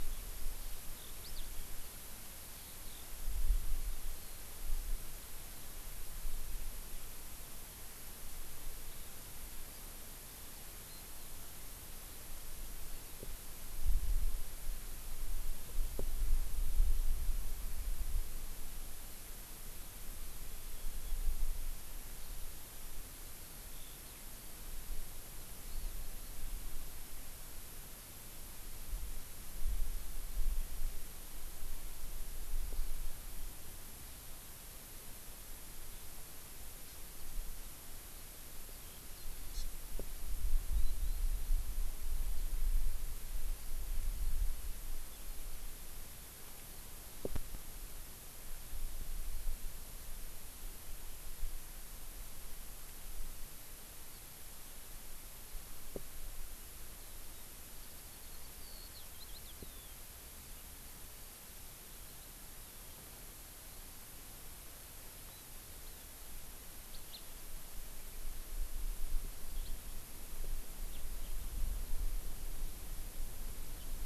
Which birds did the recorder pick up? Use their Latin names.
Alauda arvensis, Chlorodrepanis virens, Haemorhous mexicanus